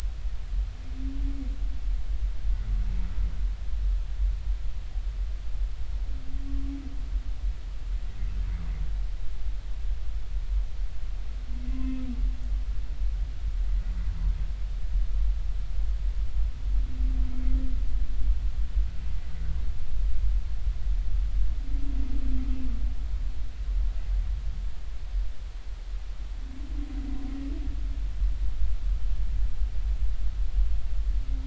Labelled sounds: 11.7	12.0	humpback whale, 0.96 to 1.1 kHz

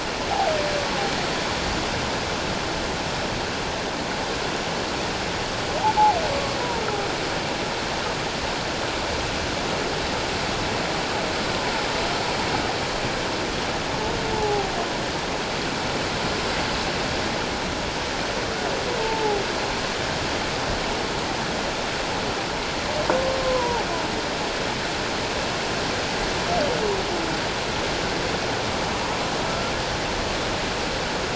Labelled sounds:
6.3	6.6	humpback whale, 1.1 to 1.2 kHz
14.3	14.7	humpback whale, 0.78 to 0.94 kHz
19.0	19.4	humpback whale, 0.78 to 0.94 kHz
23.4	23.9	humpback whale, 0.78 to 1.1 kHz

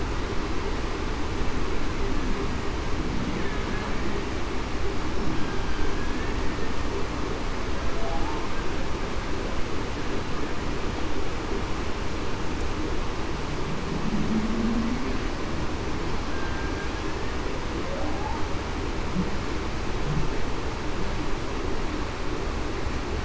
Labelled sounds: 5.9	6.5	killer whale, Bigg's (transient), 1.6 to 1.9 kHz
14.5	14.8	humpback whale, 0.19 to 0.26 kHz
16.3	16.7	killer whale, Bigg's (transient), 1.5 to 1.7 kHz

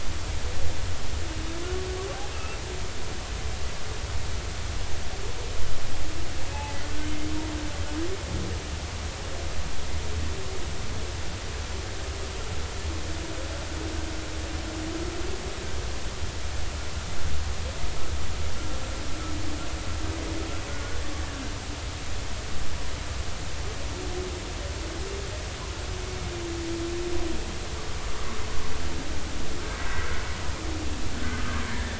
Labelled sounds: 2.3	2.6	humpback whale, 2.5 to 2.8 kHz
6.5	6.7	humpback whale, 2.5 to 2.7 kHz
7.0	7.3	humpback whale, 2.1 to 2.2 kHz
20.7	21.0	humpback whale, 1.4 to 1.5 kHz
31.3	31.9	humpback whale, 1.2 to 1.8 kHz

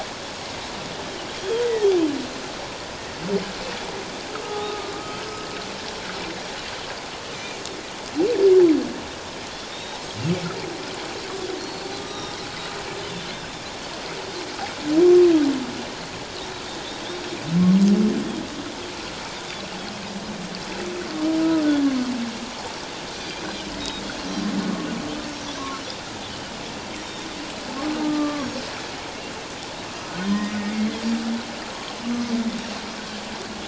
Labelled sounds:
1.4	1.9	Pacific white-sided dolphin, 1.8 to 3.4 kHz
4.4	4.9	humpback whale, 1.2 to 1.3 kHz
7.3	7.6	Pacific white-sided dolphin, 2.2 to 2.5 kHz
9.7	10.0	Pacific white-sided dolphin, 3.5 to 3.9 kHz
11.6	12.3	Pacific white-sided dolphin, 3.6 to 5.9 kHz
12.0	12.3	humpback whale, 1.2 to 1.3 kHz
23.1	24.0	Pacific white-sided dolphin, 2.3 to 3.9 kHz
25.4	25.7	Pacific white-sided dolphin, 5.6 to 5.8 kHz
27.8	28.5	humpback whale, 1.0 to 1.2 kHz
30.3	30.6	humpback whale, 1.7 to 1.9 kHz

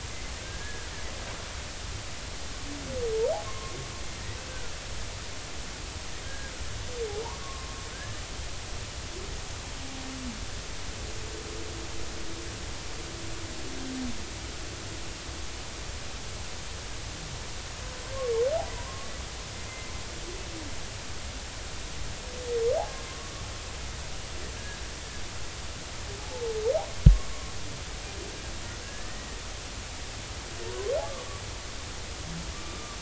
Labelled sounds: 0.4	0.9	humpback whale, 1.5 to 1.8 kHz
3.4	4.7	humpback whale, 1.0 to 1.6 kHz
6.2	6.5	humpback whale, 1.6 to 1.7 kHz
7.4	8.2	humpback whale, 0.99 to 1.8 kHz
18.7	19.1	humpback whale, 0.93 to 1.2 kHz
23.1	23.4	humpback whale, 0.99 to 1.2 kHz
26.2	26.5	humpback whale, 0.80 to 0.93 kHz
28.8	29.4	humpback whale, 1.6 to 2.0 kHz

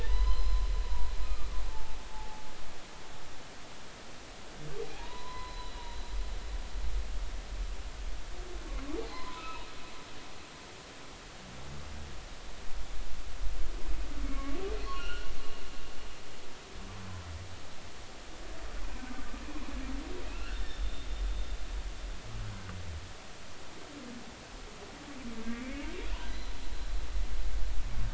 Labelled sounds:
0.0	2.4	humpback whale, 0.80 to 5.1 kHz
4.9	6.0	humpback whale, 0.80 to 4.1 kHz
9.1	9.7	humpback whale, 0.80 to 4.3 kHz
14.2	15.3	humpback whale, 1.0 to 4.4 kHz
20.3	20.8	humpback whale, 1.3 to 3.7 kHz
25.5	26.5	humpback whale, 2.1 to 4.1 kHz

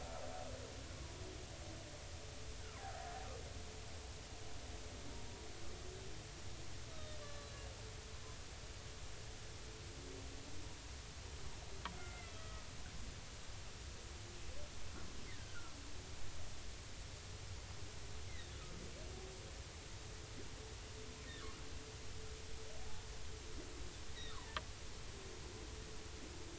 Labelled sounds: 2.8	3.1	humpback whale, 0.80 to 0.83 kHz
6.9	7.6	humpback whale, 1.1 to 4.1 kHz
12.0	12.7	humpback whale, 1.2 to 2.2 kHz
15.4	15.8	humpback whale, 1.3 to 1.7 kHz
24.3	24.6	humpback whale, 0.86 to 1.5 kHz

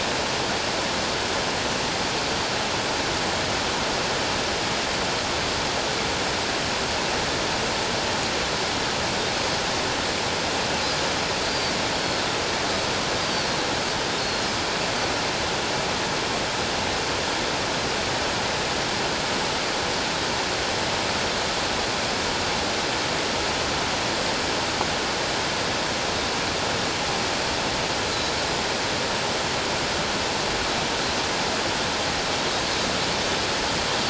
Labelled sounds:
13.2	14.5	Pacific white-sided dolphin, 4.1 to 4.9 kHz

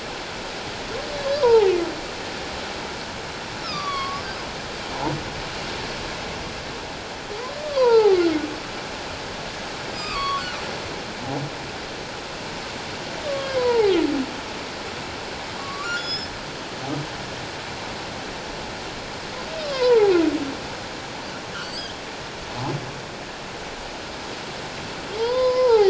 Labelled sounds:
1.4	1.7	humpback whale, 0.78 to 1.1 kHz
3.6	4.2	humpback whale, 1.0 to 5.4 kHz
7.6	8.2	humpback whale, 0.78 to 1.5 kHz
9.9	10.4	humpback whale, 1.0 to 5.1 kHz
13.3	13.9	humpback whale, 0.78 to 3.3 kHz
15.6	16.3	humpback whale, 1.0 to 5.5 kHz
19.6	20.1	humpback whale, 0.78 to 1.2 kHz
21.6	21.9	humpback whale, 4.3 to 5.1 kHz
25.2	25.8	humpback whale, 0.78 to 5.2 kHz

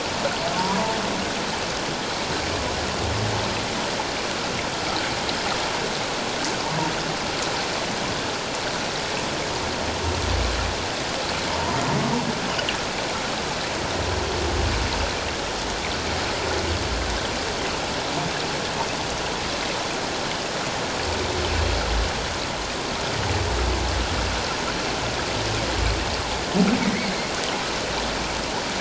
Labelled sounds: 11.5	11.8	humpback whale, 0.88 to 1.0 kHz
26.8	27.1	humpback whale, 1.9 to 2.3 kHz

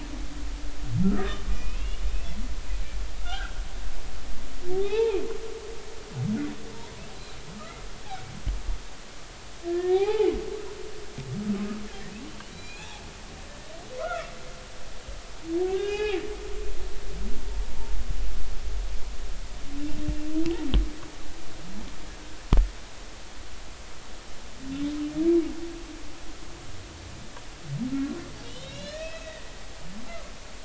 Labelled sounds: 1.0	2.0	humpback whale, 1.2 to 2.9 kHz
3.2	3.6	humpback whale, 1.2 to 3.3 kHz
4.7	5.2	humpback whale, 0.80 to 0.96 kHz
9.7	10.3	humpback whale, 0.80 to 2.7 kHz
12.5	13.0	humpback whale, 2.3 to 4.2 kHz
14.0	14.3	humpback whale, 1.2 to 1.5 kHz
15.6	16.2	humpback whale, 0.80 to 5.1 kHz
28.4	29.5	humpback whale, 1.7 to 5.3 kHz
30.1	30.3	humpback whale, 1.1 to 1.4 kHz

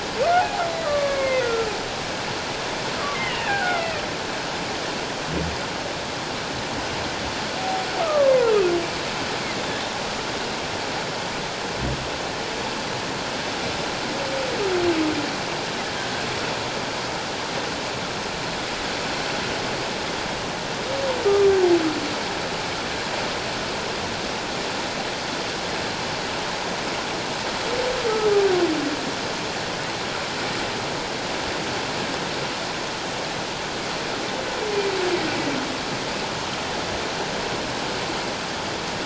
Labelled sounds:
0.8	1.7	humpback whale, 0.97 to 2.3 kHz
3.2	4.0	humpback whale, 0.78 to 3.2 kHz
8.0	8.5	humpback whale, 0.88 to 1.4 kHz

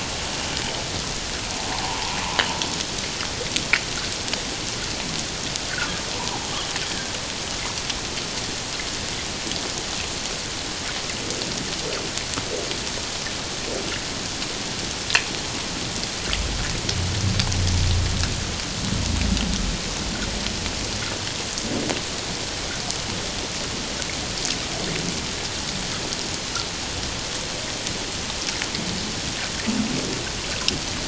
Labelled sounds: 6.1	6.5	humpback whale, 0.78 to 1.1 kHz

